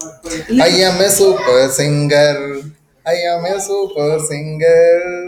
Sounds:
Sigh